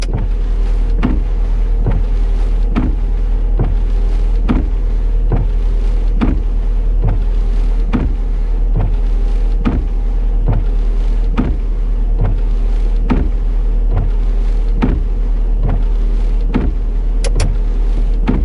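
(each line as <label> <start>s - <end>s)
A car engine rumbles deeply and dully. 0.0s - 18.4s
Car windshield wipers moving back and forth steadily and rhythmically with a low pitch. 0.0s - 18.4s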